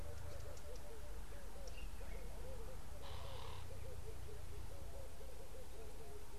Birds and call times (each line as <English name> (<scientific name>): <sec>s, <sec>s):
Red-eyed Dove (Streptopelia semitorquata): 0.4s
Ring-necked Dove (Streptopelia capicola): 3.3s